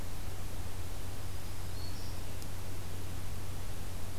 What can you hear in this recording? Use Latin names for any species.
Setophaga virens